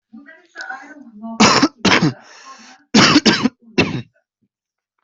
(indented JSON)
{
  "expert_labels": [
    {
      "quality": "ok",
      "cough_type": "wet",
      "dyspnea": false,
      "wheezing": false,
      "stridor": false,
      "choking": false,
      "congestion": false,
      "nothing": true,
      "diagnosis": "COVID-19",
      "severity": "mild"
    }
  ],
  "age": 20,
  "gender": "female",
  "respiratory_condition": true,
  "fever_muscle_pain": true,
  "status": "COVID-19"
}